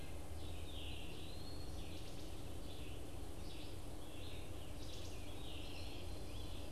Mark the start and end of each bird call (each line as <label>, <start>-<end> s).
Red-eyed Vireo (Vireo olivaceus), 0.0-6.7 s
Eastern Wood-Pewee (Contopus virens), 0.7-1.7 s
Wood Thrush (Hylocichla mustelina), 4.7-5.2 s